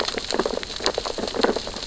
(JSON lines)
{"label": "biophony, sea urchins (Echinidae)", "recorder": "SoundTrap 600 or HydroMoth"}